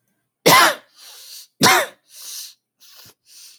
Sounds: Sniff